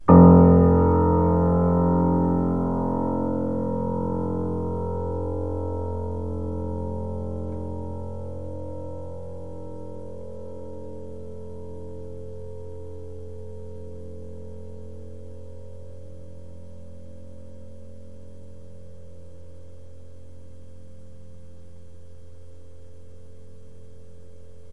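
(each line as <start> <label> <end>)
0.0 A piano key is pressed and held for a long time. 24.7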